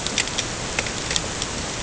{"label": "ambient", "recorder": "HydroMoth"}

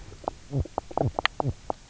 {"label": "biophony, knock croak", "recorder": "SoundTrap 300"}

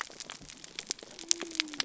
{"label": "biophony", "recorder": "SoundTrap 300"}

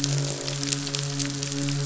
{"label": "biophony, croak", "recorder": "SoundTrap 500"}
{"label": "biophony, midshipman", "recorder": "SoundTrap 500"}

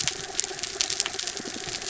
{"label": "anthrophony, mechanical", "recorder": "SoundTrap 300"}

